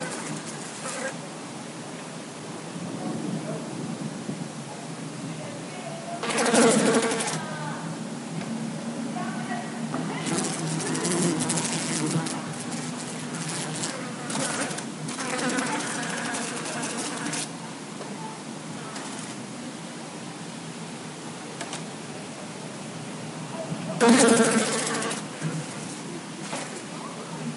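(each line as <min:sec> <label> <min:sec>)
0:00.0 A fly buzzing with wind in the background. 0:04.2
0:04.2 Indistinct human murmuring in the background. 0:06.3
0:06.2 Flies buzzing with wind in the background and indistinct human murmuring. 0:17.5
0:17.8 Wind is blowing. 0:23.9
0:24.0 Flies buzzing with wind blowing in the background. 0:25.3
0:25.4 Soft wind blowing. 0:27.6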